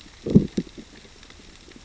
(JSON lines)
{"label": "biophony, growl", "recorder": "SoundTrap 600 or HydroMoth"}